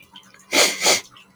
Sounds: Sniff